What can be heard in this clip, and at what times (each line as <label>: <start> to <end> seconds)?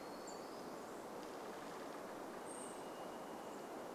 Hermit Thrush call: 0 to 2 seconds
tree creak: 0 to 2 seconds
unidentified bird chip note: 0 to 2 seconds
warbler song: 0 to 2 seconds
Brown Creeper call: 2 to 4 seconds
Varied Thrush song: 2 to 4 seconds